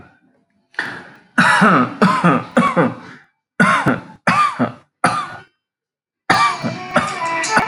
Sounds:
Cough